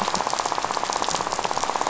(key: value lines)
label: biophony, rattle
recorder: SoundTrap 500